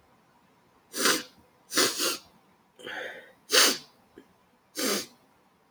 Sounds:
Sniff